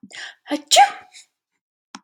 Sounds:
Sneeze